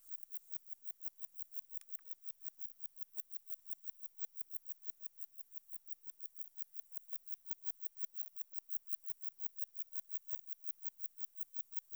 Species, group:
Metrioptera saussuriana, Orthoptera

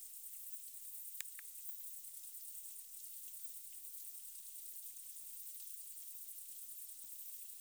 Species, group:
Phaneroptera nana, Orthoptera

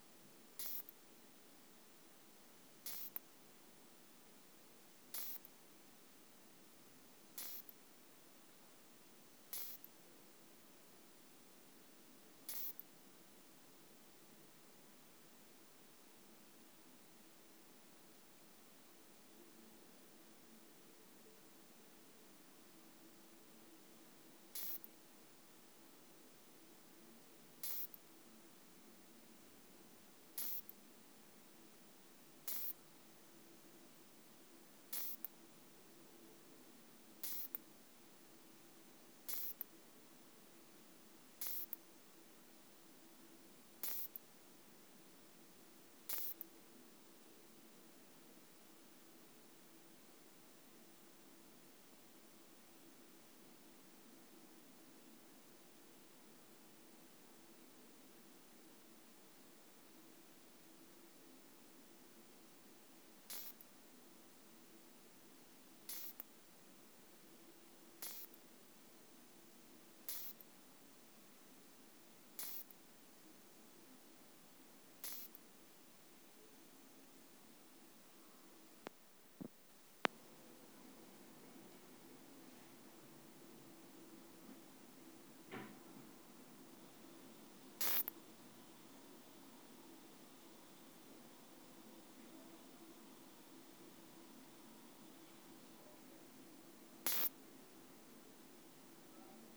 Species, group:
Isophya modestior, Orthoptera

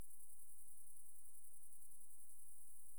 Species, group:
Tettigonia viridissima, Orthoptera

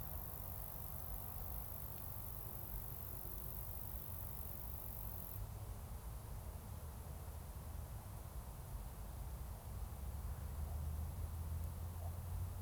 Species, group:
Roeseliana roeselii, Orthoptera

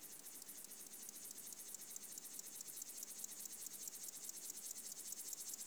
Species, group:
Chorthippus apricarius, Orthoptera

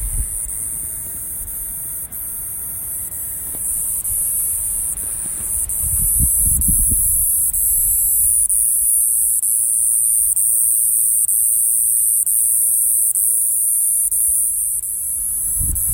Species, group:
Neoconocephalus triops, Orthoptera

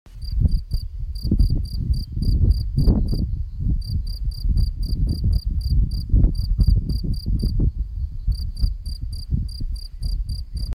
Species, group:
Gryllus campestris, Orthoptera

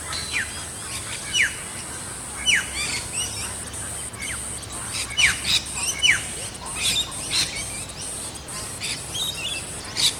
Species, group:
Popplepsalta notialis, Cicadidae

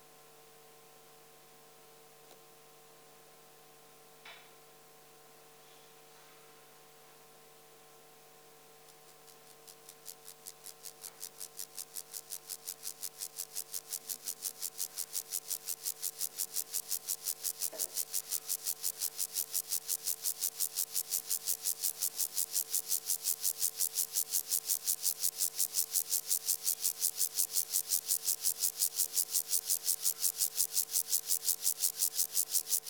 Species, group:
Chorthippus vagans, Orthoptera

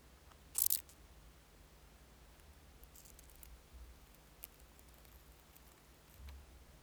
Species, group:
Chorthippus albomarginatus, Orthoptera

